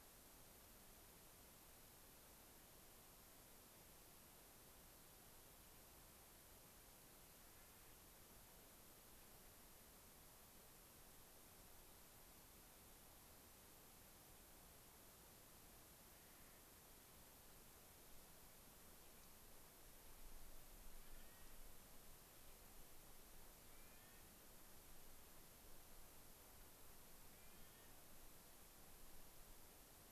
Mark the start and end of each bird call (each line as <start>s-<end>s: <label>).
20.9s-21.6s: Clark's Nutcracker (Nucifraga columbiana)
23.5s-24.4s: Clark's Nutcracker (Nucifraga columbiana)
27.1s-28.0s: Clark's Nutcracker (Nucifraga columbiana)